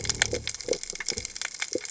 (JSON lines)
{"label": "biophony", "recorder": "HydroMoth"}